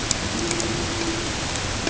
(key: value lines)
label: ambient
recorder: HydroMoth